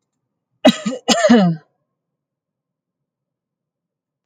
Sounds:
Cough